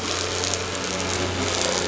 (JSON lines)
{"label": "anthrophony, boat engine", "recorder": "SoundTrap 500"}